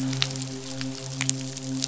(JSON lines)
{"label": "biophony, midshipman", "recorder": "SoundTrap 500"}